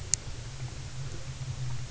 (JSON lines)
{"label": "anthrophony, boat engine", "recorder": "SoundTrap 300"}